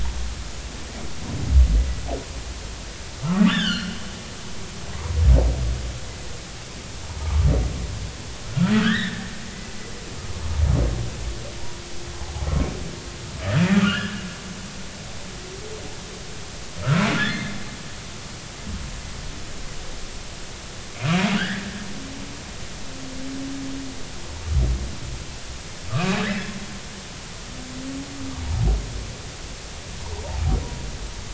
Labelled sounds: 3.2	3.9	humpback whale, 1.0 to 4.8 kHz
7.2	7.5	humpback whale, 1.1 to 1.3 kHz
8.7	9.2	humpback whale, 1.2 to 4.0 kHz
13.8	14.2	humpback whale, 1.1 to 3.2 kHz
17.2	17.6	humpback whale, 1.6 to 3.6 kHz
20.9	21.7	humpback whale, 1.4 to 2.6 kHz
25.9	26.5	humpback whale, 1.1 to 2.6 kHz

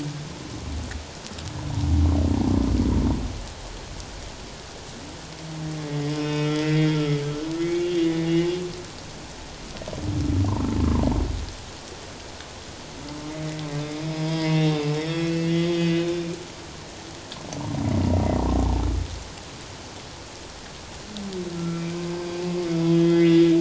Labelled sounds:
6.1	8.3	humpback whale, 1.2 to 5.5 kHz
14.1	16.4	humpback whale, 0.91 to 5.5 kHz
21.6	22.0	humpback whale, 1.3 to 2.4 kHz
22.7	23.4	humpback whale, 1.7 to 3.4 kHz

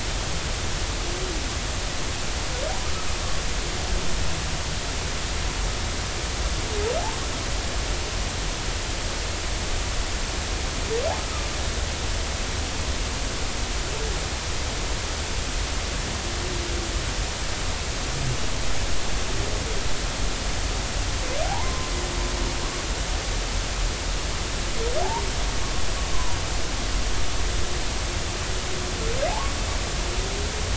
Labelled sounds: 21.4	21.9	humpback whale, 0.80 to 1.1 kHz
25.0	25.3	humpback whale, 0.80 to 1.1 kHz
26.1	26.4	humpback whale, 0.90 to 1.1 kHz
29.3	29.6	humpback whale, 0.80 to 1.2 kHz

